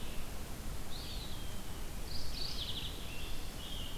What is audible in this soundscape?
Red-eyed Vireo, Eastern Wood-Pewee, Mourning Warbler, Scarlet Tanager